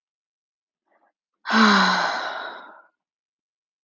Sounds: Sigh